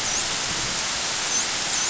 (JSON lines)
{"label": "biophony, dolphin", "recorder": "SoundTrap 500"}